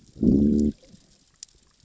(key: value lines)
label: biophony, growl
recorder: SoundTrap 600 or HydroMoth